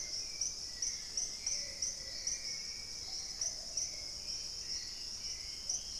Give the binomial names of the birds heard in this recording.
Turdus hauxwelli, Patagioenas plumbea, Formicarius analis, Thamnomanes ardesiacus